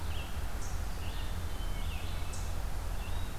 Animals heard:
Red-eyed Vireo (Vireo olivaceus), Hermit Thrush (Catharus guttatus), Eastern Chipmunk (Tamias striatus)

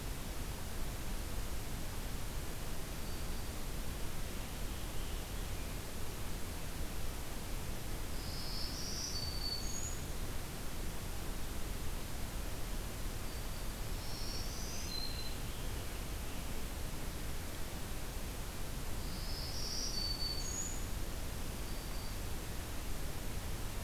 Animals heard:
Black-throated Green Warbler (Setophaga virens)

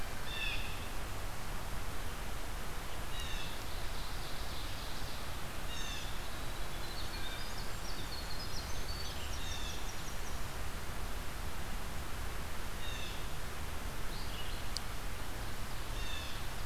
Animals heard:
Winter Wren (Troglodytes hiemalis), Blue Jay (Cyanocitta cristata), Ovenbird (Seiurus aurocapilla), Red-eyed Vireo (Vireo olivaceus)

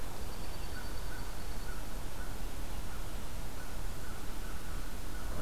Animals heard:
Dark-eyed Junco (Junco hyemalis), American Crow (Corvus brachyrhynchos)

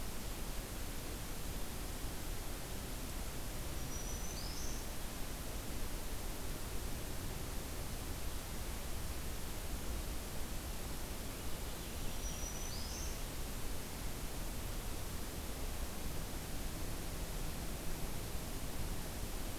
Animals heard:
Purple Finch (Haemorhous purpureus), Black-throated Green Warbler (Setophaga virens)

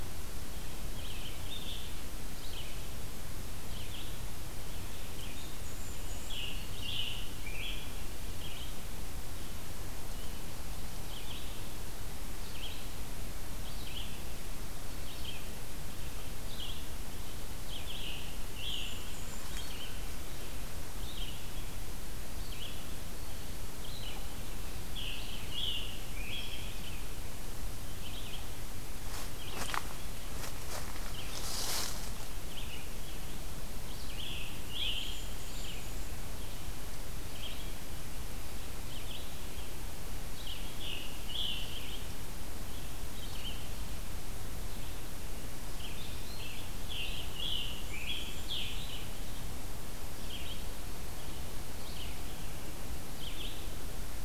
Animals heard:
Red-eyed Vireo (Vireo olivaceus), Scarlet Tanager (Piranga olivacea), Black-and-white Warbler (Mniotilta varia), Chimney Swift (Chaetura pelagica)

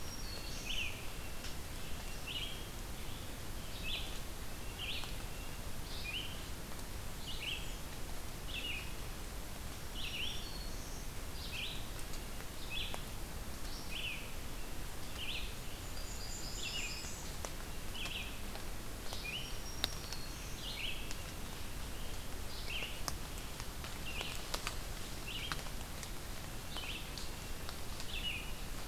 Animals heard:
Red-eyed Vireo (Vireo olivaceus), Blackburnian Warbler (Setophaga fusca), Red-breasted Nuthatch (Sitta canadensis), Black-throated Green Warbler (Setophaga virens)

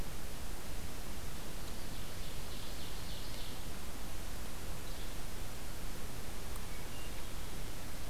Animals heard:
Yellow-bellied Flycatcher (Empidonax flaviventris), Ovenbird (Seiurus aurocapilla), Hermit Thrush (Catharus guttatus)

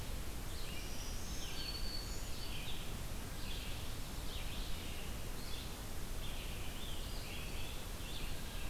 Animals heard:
Red-eyed Vireo (Vireo olivaceus), Black-throated Green Warbler (Setophaga virens)

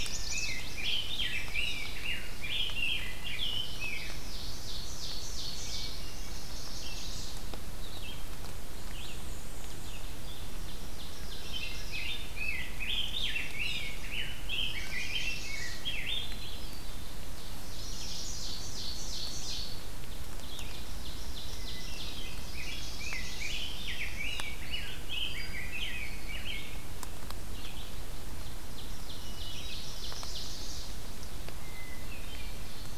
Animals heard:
Chestnut-sided Warbler (Setophaga pensylvanica), Common Yellowthroat (Geothlypis trichas), Red-eyed Vireo (Vireo olivaceus), Hermit Thrush (Catharus guttatus), Ovenbird (Seiurus aurocapilla), Rose-breasted Grosbeak (Pheucticus ludovicianus), Northern Parula (Setophaga americana), Black-and-white Warbler (Mniotilta varia)

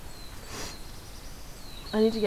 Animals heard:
Black-throated Blue Warbler (Setophaga caerulescens)

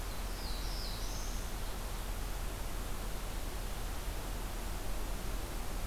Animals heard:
Black-throated Blue Warbler (Setophaga caerulescens)

